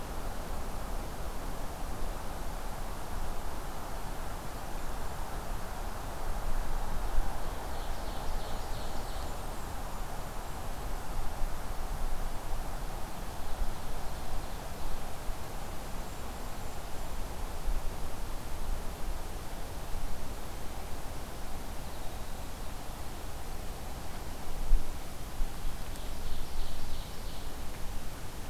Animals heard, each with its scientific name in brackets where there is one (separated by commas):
Ovenbird (Seiurus aurocapilla), Blackburnian Warbler (Setophaga fusca), Golden-crowned Kinglet (Regulus satrapa)